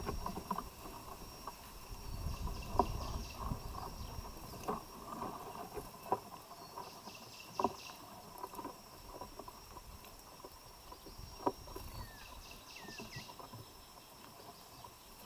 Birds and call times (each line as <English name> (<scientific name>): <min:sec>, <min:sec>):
Cinnamon Bracken-Warbler (Bradypterus cinnamomeus): 0:07.2
African Emerald Cuckoo (Chrysococcyx cupreus): 0:12.7